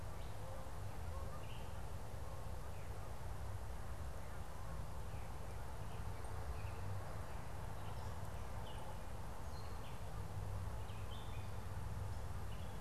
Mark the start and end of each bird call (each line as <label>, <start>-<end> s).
Canada Goose (Branta canadensis), 0.0-2.7 s
Veery (Catharus fuscescens), 1.3-1.7 s
Gray Catbird (Dumetella carolinensis), 7.6-12.8 s